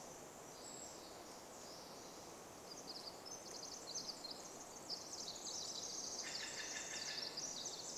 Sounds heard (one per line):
Steller's Jay call
Brown Creeper call
Pacific Wren song